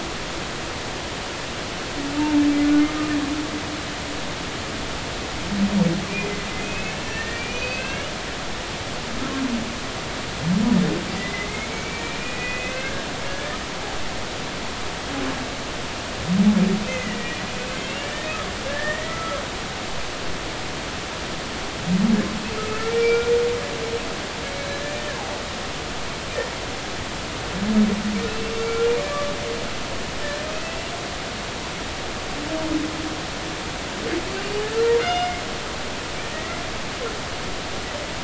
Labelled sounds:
2.2	2.4	humpback whale, 0.86 to 0.96 kHz
6.1	8.1	humpback whale, 1.5 to 3.0 kHz
11.2	13.6	humpback whale, 1.5 to 2.7 kHz
16.9	17.4	humpback whale, 1.8 to 2.1 kHz
17.8	18.3	humpback whale, 1.7 to 2.9 kHz
18.7	19.4	humpback whale, 1.2 to 2.0 kHz
22.7	23.4	humpback whale, 1.7 to 2.5 kHz
28.3	29.3	humpback whale, 1.1 to 2.8 kHz
30.5	30.8	humpback whale, 2.5 to 2.8 kHz
35.0	35.3	humpback whale, 2.8 to 5.2 kHz

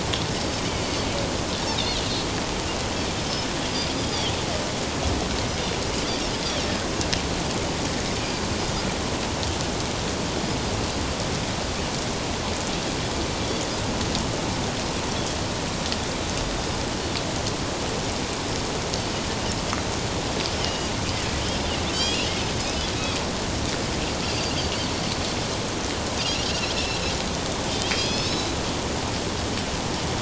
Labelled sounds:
3.2	3.5	Pacific white-sided dolphin, 5.1 to 5.3 kHz
3.9	4.3	Pacific white-sided dolphin, 4.5 to 5.1 kHz
20.6	20.9	Pacific white-sided dolphin, 2.8 to 3.2 kHz
21.9	22.9	Pacific white-sided dolphin, 2.3 to 5.2 kHz
24.2	24.5	Pacific white-sided dolphin, 4.6 to 4.9 kHz
26.7	27.0	Pacific white-sided dolphin, 2.6 to 2.9 kHz
27.9	28.6	Pacific white-sided dolphin, 2.4 to 5.4 kHz

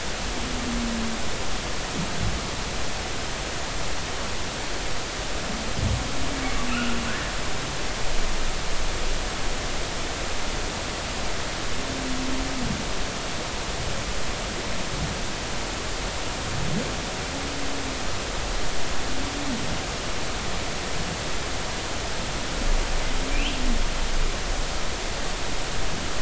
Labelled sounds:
6.7	7.3	humpback whale, 1.2 to 1.9 kHz
23.3	23.6	humpback whale, 2.3 to 3.3 kHz

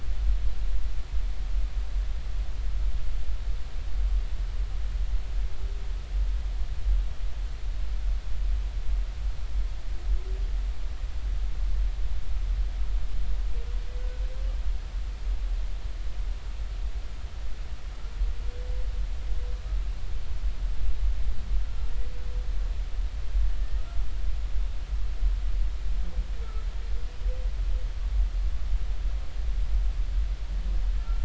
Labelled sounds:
31.0	31.2	humpback whale, 1.3 to 1.4 kHz

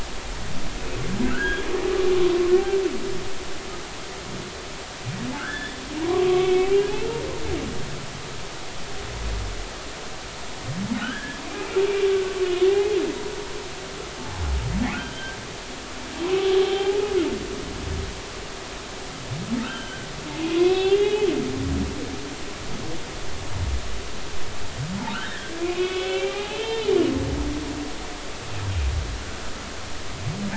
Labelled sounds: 1.2	1.6	humpback whale, 1.3 to 1.7 kHz
5.4	7.2	humpback whale, 0.90 to 3.5 kHz
11.0	11.4	humpback whale, 1.2 to 1.8 kHz
12.6	13.0	humpback whale, 0.80 to 2.1 kHz
14.9	15.4	humpback whale, 1.3 to 3.2 kHz
16.6	17.0	humpback whale, 0.80 to 0.90 kHz
19.6	20.1	humpback whale, 1.2 to 3.2 kHz
20.5	21.3	humpback whale, 0.99 to 3.6 kHz
25.1	26.9	humpback whale, 0.80 to 3.6 kHz
27.4	27.9	humpback whale, 2.8 to 3.2 kHz

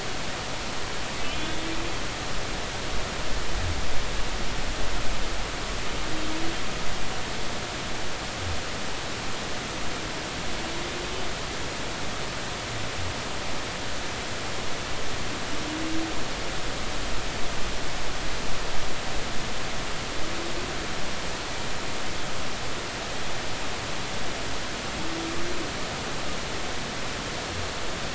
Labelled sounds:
1.4	1.7	humpback whale, 3.3 to 3.6 kHz

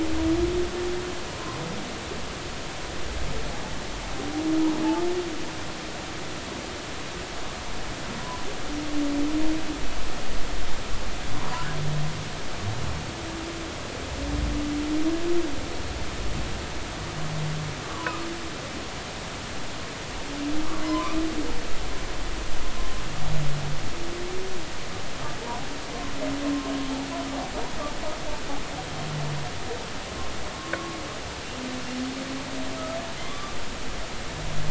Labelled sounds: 11.4	11.7	humpback whale, 0.90 to 1.1 kHz
17.8	18.2	humpback whale, 0.93 to 1.2 kHz
20.8	21.2	humpback whale, 0.93 to 1.3 kHz
33.2	33.5	humpback whale, 0.99 to 1.2 kHz

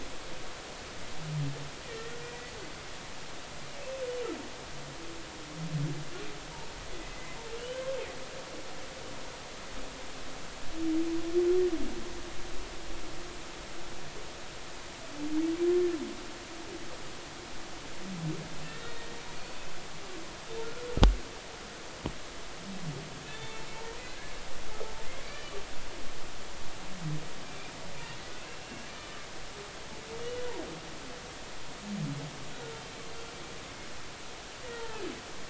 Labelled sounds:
1.8	2.1	humpback whale, 1.8 to 2.0 kHz
7.0	7.8	humpback whale, 2.0 to 3.2 kHz
18.6	19.0	humpback whale, 1.7 to 1.9 kHz
20.6	20.9	humpback whale, 1.3 to 1.5 kHz
23.2	23.7	humpback whale, 0.83 to 3.6 kHz
24.0	25.6	humpback whale, 1.4 to 2.4 kHz
27.5	27.7	humpback whale, 2.3 to 2.5 kHz
28.5	28.9	humpback whale, 2.7 to 2.8 kHz
30.2	30.5	humpback whale, 2.8 to 3.0 kHz
34.7	35.0	humpback whale, 0.83 to 1.5 kHz

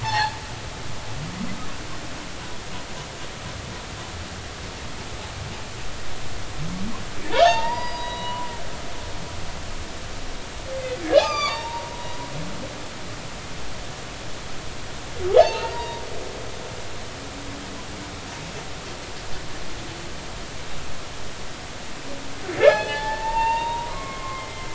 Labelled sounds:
0.0	0.4	humpback whale, 0.80 to 4.5 kHz
7.2	8.5	humpback whale, 0.80 to 4.9 kHz
11.1	12.8	humpback whale, 0.80 to 7.3 kHz
15.3	16.0	humpback whale, 0.80 to 3.9 kHz
22.7	24.7	humpback whale, 0.80 to 5.2 kHz

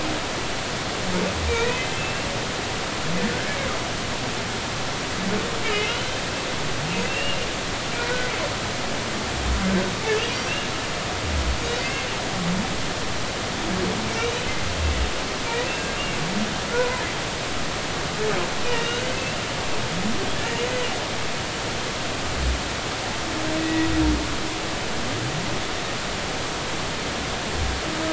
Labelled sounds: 1.5	2.3	humpback whale, 1.8 to 3.2 kHz
3.3	3.6	humpback whale, 1.4 to 1.8 kHz
5.9	6.1	humpback whale, 2.8 to 3.1 kHz
7.1	7.4	humpback whale, 2.6 to 2.9 kHz
11.8	12.1	humpback whale, 2.0 to 2.2 kHz
14.2	14.4	humpback whale, 3.6 to 4.1 kHz
15.6	15.9	humpback whale, 2.6 to 2.8 kHz
16.7	17.0	humpback whale, 0.93 to 1.1 kHz
18.6	19.0	humpback whale, 2.7 to 3.1 kHz
20.1	20.4	humpback whale, 2.5 to 2.8 kHz
23.6	23.9	humpback whale, 1.9 to 2.0 kHz

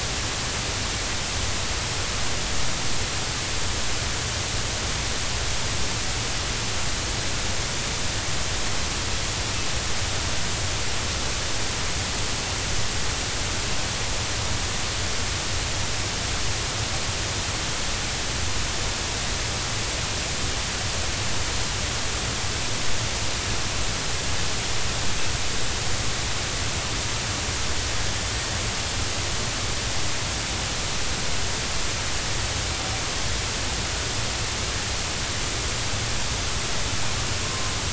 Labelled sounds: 37.4	37.7	killer whale, northern resident, 0.99 to 1.1 kHz

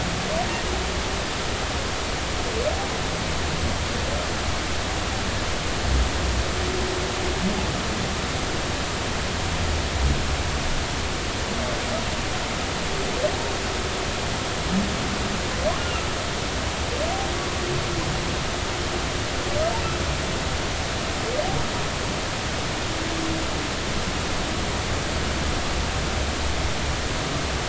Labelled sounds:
15.8	16.1	humpback whale, 2.7 to 2.9 kHz

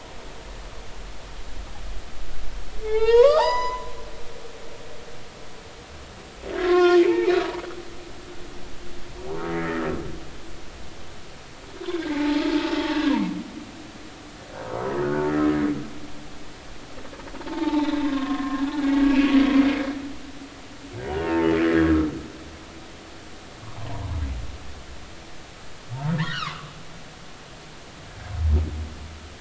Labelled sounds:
2.8	3.9	humpback whale, 0.80 to 7.0 kHz
6.6	7.3	humpback whale, 0.93 to 3.6 kHz
9.5	9.8	humpback whale, 1.8 to 2.1 kHz
13.0	13.5	humpback whale, 0.83 to 1.2 kHz
15.0	15.3	humpback whale, 1.3 to 1.6 kHz
17.3	18.6	humpback whale, 0.83 to 4.1 kHz
19.0	19.3	humpback whale, 2.3 to 2.8 kHz
21.1	21.5	humpback whale, 0.86 to 3.0 kHz
26.2	26.7	humpback whale, 0.99 to 1.7 kHz

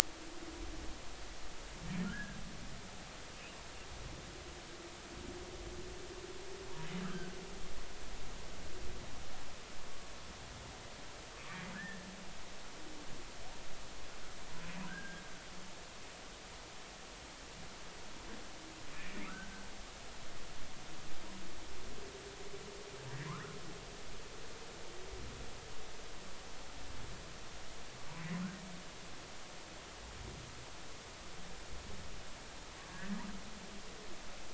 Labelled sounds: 2.0	2.4	humpback whale, 1.3 to 1.8 kHz
7.0	7.4	humpback whale, 1.2 to 1.7 kHz
11.7	12.0	humpback whale, 1.4 to 1.9 kHz
14.9	15.2	humpback whale, 1.4 to 1.7 kHz
18.9	19.7	humpback whale, 1.1 to 2.6 kHz
23.3	23.6	humpback whale, 0.96 to 1.5 kHz

